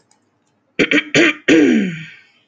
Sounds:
Throat clearing